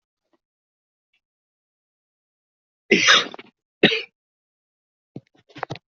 {"expert_labels": [{"quality": "poor", "cough_type": "unknown", "dyspnea": false, "wheezing": false, "stridor": false, "choking": false, "congestion": false, "nothing": true, "diagnosis": "lower respiratory tract infection", "severity": "mild"}]}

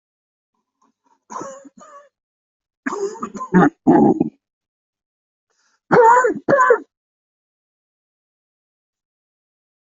{"expert_labels": [{"quality": "good", "cough_type": "dry", "dyspnea": false, "wheezing": false, "stridor": false, "choking": false, "congestion": false, "nothing": true, "diagnosis": "obstructive lung disease", "severity": "severe"}], "age": 55, "gender": "male", "respiratory_condition": false, "fever_muscle_pain": false, "status": "COVID-19"}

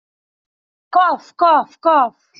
{"expert_labels": [{"quality": "no cough present", "cough_type": "unknown", "dyspnea": false, "wheezing": false, "stridor": false, "choking": false, "congestion": false, "nothing": true, "diagnosis": "healthy cough", "severity": "pseudocough/healthy cough"}]}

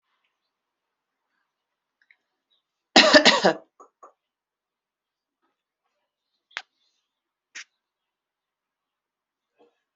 {"expert_labels": [{"quality": "good", "cough_type": "dry", "dyspnea": false, "wheezing": false, "stridor": false, "choking": false, "congestion": false, "nothing": true, "diagnosis": "healthy cough", "severity": "pseudocough/healthy cough"}], "age": 32, "gender": "female", "respiratory_condition": false, "fever_muscle_pain": false, "status": "healthy"}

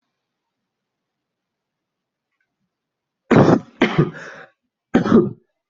{"expert_labels": [{"quality": "good", "cough_type": "wet", "dyspnea": false, "wheezing": false, "stridor": false, "choking": false, "congestion": false, "nothing": true, "diagnosis": "lower respiratory tract infection", "severity": "mild"}], "age": 18, "gender": "male", "respiratory_condition": true, "fever_muscle_pain": false, "status": "healthy"}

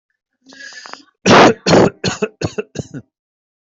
{"expert_labels": [{"quality": "ok", "cough_type": "wet", "dyspnea": false, "wheezing": false, "stridor": false, "choking": false, "congestion": false, "nothing": true, "diagnosis": "lower respiratory tract infection", "severity": "mild"}]}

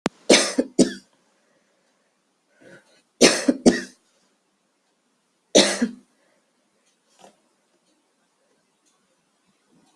{"expert_labels": [{"quality": "good", "cough_type": "dry", "dyspnea": true, "wheezing": false, "stridor": false, "choking": false, "congestion": false, "nothing": false, "diagnosis": "COVID-19", "severity": "mild"}], "age": 46, "gender": "female", "respiratory_condition": false, "fever_muscle_pain": false, "status": "symptomatic"}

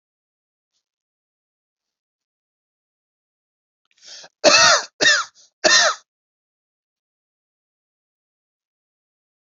{"expert_labels": [{"quality": "good", "cough_type": "dry", "dyspnea": false, "wheezing": false, "stridor": false, "choking": false, "congestion": false, "nothing": true, "diagnosis": "upper respiratory tract infection", "severity": "mild"}], "age": 34, "gender": "male", "respiratory_condition": false, "fever_muscle_pain": false, "status": "healthy"}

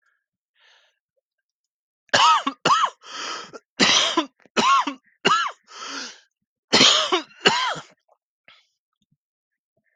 {"expert_labels": [{"quality": "good", "cough_type": "dry", "dyspnea": false, "wheezing": false, "stridor": false, "choking": false, "congestion": false, "nothing": true, "diagnosis": "upper respiratory tract infection", "severity": "severe"}], "age": 24, "gender": "male", "respiratory_condition": true, "fever_muscle_pain": false, "status": "symptomatic"}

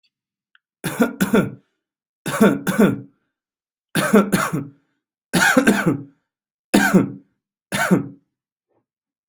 {"expert_labels": [{"quality": "good", "cough_type": "dry", "dyspnea": false, "wheezing": false, "stridor": false, "choking": false, "congestion": false, "nothing": true, "diagnosis": "upper respiratory tract infection", "severity": "mild"}], "age": 35, "gender": "male", "respiratory_condition": false, "fever_muscle_pain": true, "status": "healthy"}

